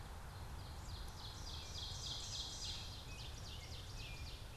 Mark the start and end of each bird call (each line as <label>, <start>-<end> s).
Ovenbird (Seiurus aurocapilla), 0.0-4.6 s
American Robin (Turdus migratorius), 2.5-4.6 s